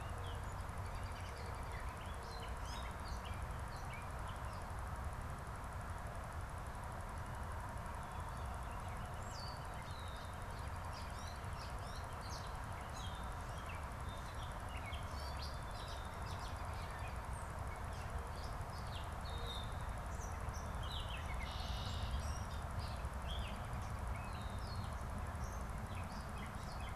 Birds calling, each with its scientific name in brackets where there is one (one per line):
Red-winged Blackbird (Agelaius phoeniceus)
Gray Catbird (Dumetella carolinensis)
American Robin (Turdus migratorius)